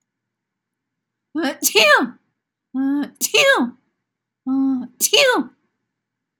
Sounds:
Sneeze